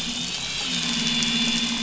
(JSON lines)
{"label": "anthrophony, boat engine", "recorder": "SoundTrap 500"}